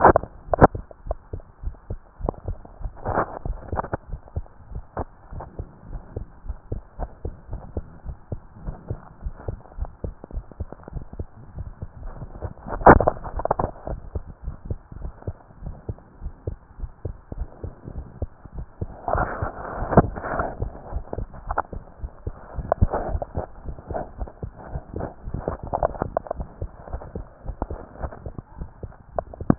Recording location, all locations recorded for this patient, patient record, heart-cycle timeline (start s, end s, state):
tricuspid valve (TV)
aortic valve (AV)+pulmonary valve (PV)+tricuspid valve (TV)+mitral valve (MV)
#Age: Child
#Sex: Male
#Height: 139.0 cm
#Weight: 32.5 kg
#Pregnancy status: False
#Murmur: Absent
#Murmur locations: nan
#Most audible location: nan
#Systolic murmur timing: nan
#Systolic murmur shape: nan
#Systolic murmur grading: nan
#Systolic murmur pitch: nan
#Systolic murmur quality: nan
#Diastolic murmur timing: nan
#Diastolic murmur shape: nan
#Diastolic murmur grading: nan
#Diastolic murmur pitch: nan
#Diastolic murmur quality: nan
#Outcome: Abnormal
#Campaign: 2015 screening campaign
0.00	4.08	unannotated
4.08	4.20	S1
4.20	4.34	systole
4.34	4.44	S2
4.44	4.68	diastole
4.68	4.82	S1
4.82	4.98	systole
4.98	5.08	S2
5.08	5.32	diastole
5.32	5.44	S1
5.44	5.56	systole
5.56	5.66	S2
5.66	5.88	diastole
5.88	6.02	S1
6.02	6.14	systole
6.14	6.28	S2
6.28	6.46	diastole
6.46	6.56	S1
6.56	6.70	systole
6.70	6.82	S2
6.82	6.98	diastole
6.98	7.10	S1
7.10	7.22	systole
7.22	7.32	S2
7.32	7.50	diastole
7.50	7.62	S1
7.62	7.74	systole
7.74	7.86	S2
7.86	8.06	diastole
8.06	8.16	S1
8.16	8.30	systole
8.30	8.42	S2
8.42	8.62	diastole
8.62	8.76	S1
8.76	8.88	systole
8.88	9.00	S2
9.00	9.20	diastole
9.20	9.34	S1
9.34	9.46	systole
9.46	9.60	S2
9.60	9.76	diastole
9.76	9.94	S1
9.94	10.04	systole
10.04	10.16	S2
10.16	10.34	diastole
10.34	10.44	S1
10.44	10.58	systole
10.58	10.68	S2
10.68	10.94	diastole
10.94	11.06	S1
11.06	11.18	systole
11.18	11.28	S2
11.28	11.54	diastole
11.54	11.68	S1
11.68	11.82	systole
11.82	11.92	S2
11.92	12.14	diastole
12.14	12.28	S1
12.28	12.40	systole
12.40	12.52	S2
12.52	12.72	diastole
12.72	13.86	unannotated
13.86	14.02	S1
14.02	14.14	systole
14.14	14.28	S2
14.28	14.46	diastole
14.46	14.56	S1
14.56	14.66	systole
14.66	14.78	S2
14.78	15.00	diastole
15.00	15.14	S1
15.14	15.26	systole
15.26	15.38	S2
15.38	15.62	diastole
15.62	15.76	S1
15.76	15.88	systole
15.88	15.98	S2
15.98	16.20	diastole
16.20	16.34	S1
16.34	16.46	systole
16.46	16.58	S2
16.58	16.78	diastole
16.78	16.92	S1
16.92	17.04	systole
17.04	17.18	S2
17.18	17.38	diastole
17.38	17.52	S1
17.52	17.62	systole
17.62	17.74	S2
17.74	17.94	diastole
17.94	18.06	S1
18.06	18.18	systole
18.18	18.34	S2
18.34	18.56	diastole
18.56	18.68	S1
18.68	18.80	systole
18.80	18.90	S2
18.90	19.01	diastole
19.01	29.58	unannotated